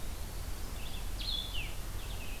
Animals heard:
Red-eyed Vireo (Vireo olivaceus), Blue-headed Vireo (Vireo solitarius), Eastern Wood-Pewee (Contopus virens)

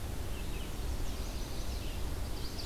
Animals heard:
Chestnut-sided Warbler (Setophaga pensylvanica), Red-eyed Vireo (Vireo olivaceus)

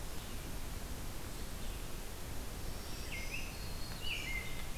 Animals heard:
Red-eyed Vireo (Vireo olivaceus), American Robin (Turdus migratorius), Black-throated Green Warbler (Setophaga virens)

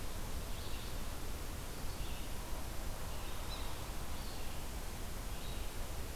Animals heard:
Yellow-bellied Sapsucker (Sphyrapicus varius), Red-eyed Vireo (Vireo olivaceus)

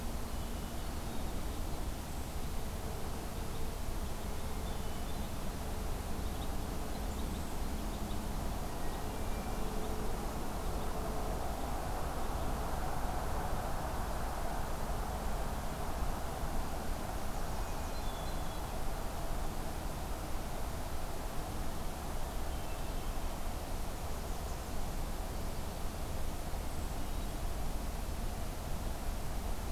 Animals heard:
Hermit Thrush (Catharus guttatus)

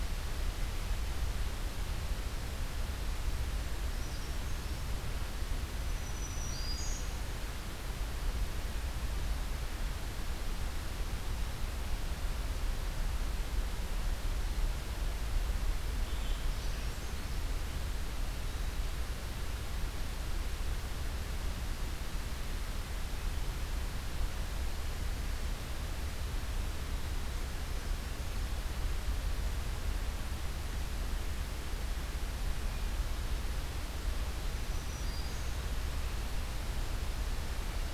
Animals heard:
Black-throated Green Warbler (Setophaga virens), Brown Creeper (Certhia americana)

